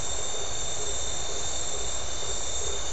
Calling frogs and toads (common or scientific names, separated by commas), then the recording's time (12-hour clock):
blacksmith tree frog
7:15pm